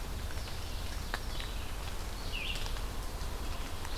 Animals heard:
Ovenbird (Seiurus aurocapilla), Red-eyed Vireo (Vireo olivaceus)

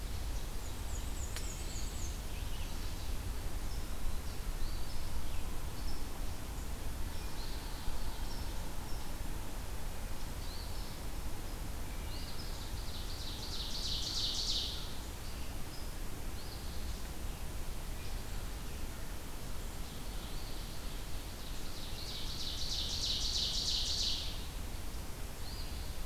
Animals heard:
Ovenbird (Seiurus aurocapilla), Eastern Phoebe (Sayornis phoebe), Black-and-white Warbler (Mniotilta varia), Wood Thrush (Hylocichla mustelina)

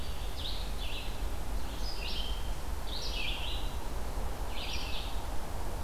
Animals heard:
Red-eyed Vireo (Vireo olivaceus)

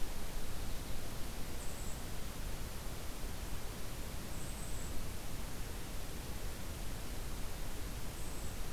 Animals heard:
Golden-crowned Kinglet (Regulus satrapa)

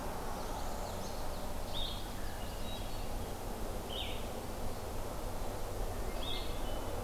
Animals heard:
Common Yellowthroat (Geothlypis trichas), Hermit Thrush (Catharus guttatus), Blue-headed Vireo (Vireo solitarius), Northern Parula (Setophaga americana)

